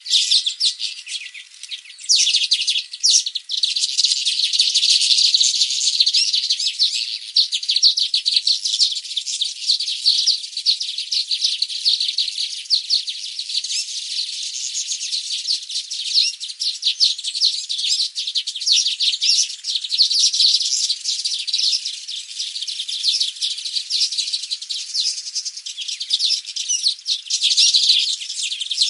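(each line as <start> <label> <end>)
0.1 A bird chirps brightly in a peaceful natural environment. 28.9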